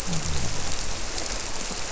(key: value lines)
label: biophony
recorder: SoundTrap 300